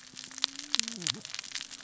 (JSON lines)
{"label": "biophony, cascading saw", "recorder": "SoundTrap 600 or HydroMoth"}